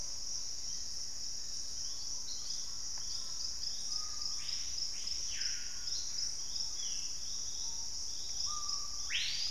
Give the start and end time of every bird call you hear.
[1.80, 3.90] unidentified bird
[2.40, 3.60] Collared Trogon (Trogon collaris)
[3.50, 9.51] Screaming Piha (Lipaugus vociferans)
[4.80, 7.20] Gray Antbird (Cercomacra cinerascens)
[6.40, 7.30] Ringed Antpipit (Corythopis torquatus)

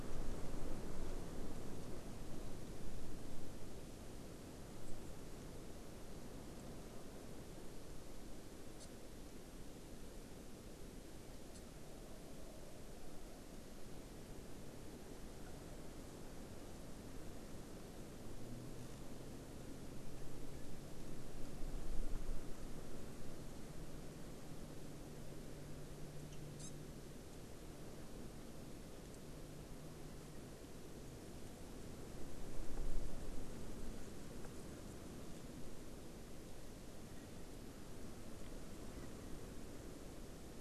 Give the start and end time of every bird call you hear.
[8.77, 8.87] Hawaii Amakihi (Chlorodrepanis virens)
[26.57, 26.67] Hawaii Amakihi (Chlorodrepanis virens)

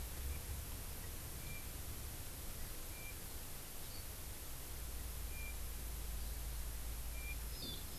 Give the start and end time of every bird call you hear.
[7.50, 7.80] Hawaii Amakihi (Chlorodrepanis virens)

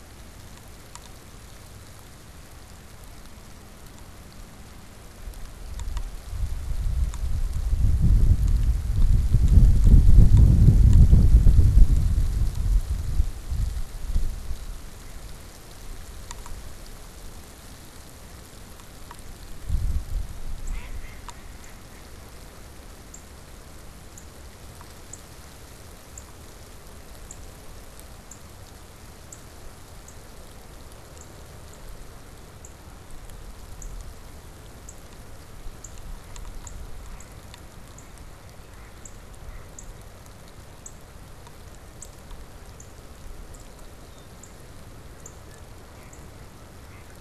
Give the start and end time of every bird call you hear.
[20.49, 46.39] Northern Cardinal (Cardinalis cardinalis)
[20.59, 22.59] Mallard (Anas platyrhynchos)
[43.99, 44.39] Red-winged Blackbird (Agelaius phoeniceus)
[45.39, 47.20] Canada Goose (Branta canadensis)

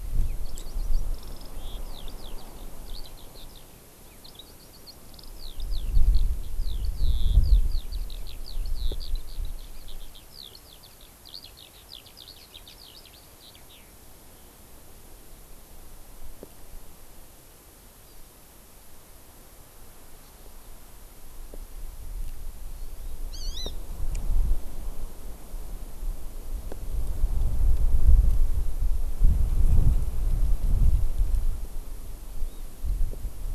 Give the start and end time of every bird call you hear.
[0.00, 13.95] Eurasian Skylark (Alauda arvensis)
[18.05, 18.25] Hawaii Amakihi (Chlorodrepanis virens)
[20.25, 20.35] Hawaii Amakihi (Chlorodrepanis virens)
[22.75, 23.75] Hawaii Amakihi (Chlorodrepanis virens)
[32.25, 32.65] Hawaii Amakihi (Chlorodrepanis virens)

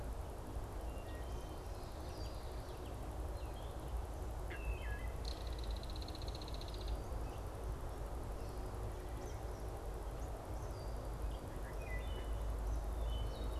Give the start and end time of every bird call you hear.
[0.80, 1.80] Wood Thrush (Hylocichla mustelina)
[2.10, 2.40] Red-winged Blackbird (Agelaius phoeniceus)
[4.40, 5.20] Wood Thrush (Hylocichla mustelina)
[4.90, 7.10] Belted Kingfisher (Megaceryle alcyon)
[8.80, 9.70] Eastern Kingbird (Tyrannus tyrannus)
[10.60, 11.00] Red-winged Blackbird (Agelaius phoeniceus)
[11.50, 13.50] Wood Thrush (Hylocichla mustelina)

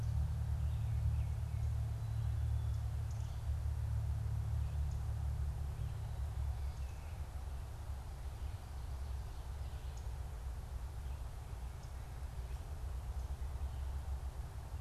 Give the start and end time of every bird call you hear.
[3.06, 3.26] unidentified bird
[4.76, 5.06] unidentified bird
[9.86, 10.06] unidentified bird

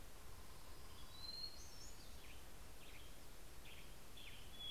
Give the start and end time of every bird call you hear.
[0.00, 4.71] Hermit Thrush (Catharus guttatus)
[2.35, 4.71] Western Tanager (Piranga ludoviciana)

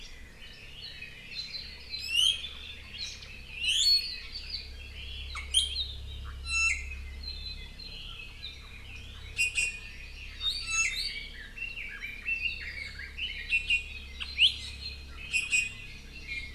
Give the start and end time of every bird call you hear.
[0.00, 5.85] Red-billed Leiothrix (Leiothrix lutea)
[1.85, 2.45] Iiwi (Drepanis coccinea)
[3.05, 3.15] Hawaii Amakihi (Chlorodrepanis virens)
[3.45, 4.05] Iiwi (Drepanis coccinea)
[5.55, 5.85] Iiwi (Drepanis coccinea)
[6.45, 6.95] Iiwi (Drepanis coccinea)
[9.35, 9.95] Iiwi (Drepanis coccinea)
[9.65, 10.55] Hawaii Amakihi (Chlorodrepanis virens)
[10.35, 11.35] Iiwi (Drepanis coccinea)
[10.85, 13.45] Red-billed Leiothrix (Leiothrix lutea)
[13.45, 14.05] Iiwi (Drepanis coccinea)
[14.35, 14.65] Iiwi (Drepanis coccinea)
[15.35, 15.95] Iiwi (Drepanis coccinea)
[16.25, 16.55] Iiwi (Drepanis coccinea)

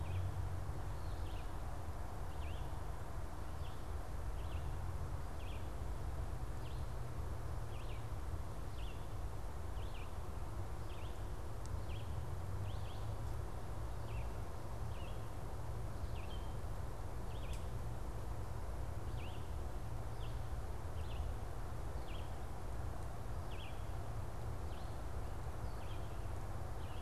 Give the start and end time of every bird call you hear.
[0.00, 27.02] Red-eyed Vireo (Vireo olivaceus)

